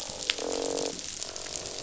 {"label": "biophony, croak", "recorder": "SoundTrap 500"}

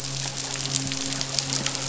{"label": "biophony, midshipman", "recorder": "SoundTrap 500"}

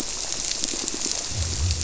{"label": "biophony, squirrelfish (Holocentrus)", "recorder": "SoundTrap 300"}
{"label": "biophony", "recorder": "SoundTrap 300"}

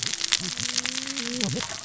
{"label": "biophony, cascading saw", "recorder": "SoundTrap 600 or HydroMoth"}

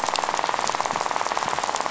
{"label": "biophony, rattle", "recorder": "SoundTrap 500"}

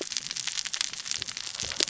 {"label": "biophony, cascading saw", "recorder": "SoundTrap 600 or HydroMoth"}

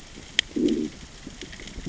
{"label": "biophony, growl", "recorder": "SoundTrap 600 or HydroMoth"}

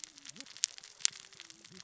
{"label": "biophony, cascading saw", "recorder": "SoundTrap 600 or HydroMoth"}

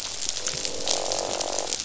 {"label": "biophony, croak", "recorder": "SoundTrap 500"}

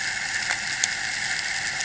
{"label": "anthrophony, boat engine", "recorder": "HydroMoth"}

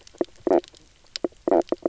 {"label": "biophony, knock croak", "recorder": "SoundTrap 300"}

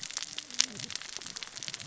{"label": "biophony, cascading saw", "recorder": "SoundTrap 600 or HydroMoth"}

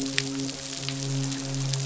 {"label": "biophony, midshipman", "recorder": "SoundTrap 500"}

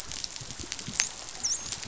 {"label": "biophony, dolphin", "recorder": "SoundTrap 500"}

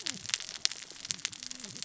{"label": "biophony, cascading saw", "recorder": "SoundTrap 600 or HydroMoth"}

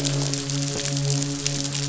{"label": "biophony, midshipman", "recorder": "SoundTrap 500"}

